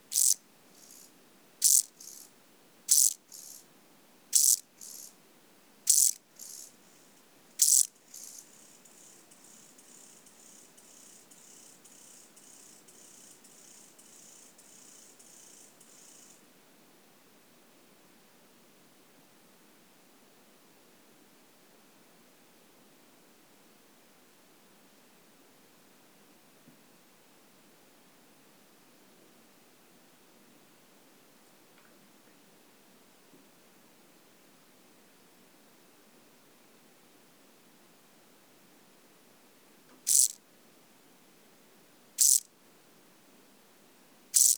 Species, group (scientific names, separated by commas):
Chorthippus brunneus, Orthoptera